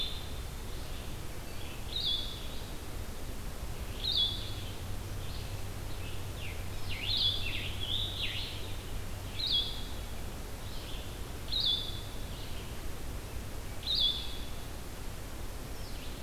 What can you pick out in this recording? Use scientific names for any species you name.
Vireo solitarius, Vireo olivaceus, Piranga olivacea